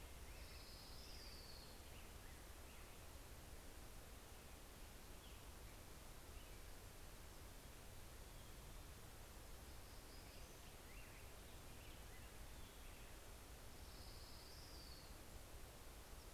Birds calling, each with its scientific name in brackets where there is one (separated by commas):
Orange-crowned Warbler (Leiothlypis celata), Hermit Warbler (Setophaga occidentalis), Black-headed Grosbeak (Pheucticus melanocephalus)